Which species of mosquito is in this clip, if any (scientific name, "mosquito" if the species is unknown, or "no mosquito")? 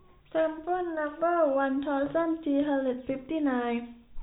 no mosquito